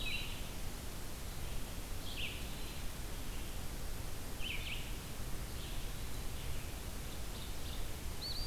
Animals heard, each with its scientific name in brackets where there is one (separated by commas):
Eastern Wood-Pewee (Contopus virens), Red-eyed Vireo (Vireo olivaceus)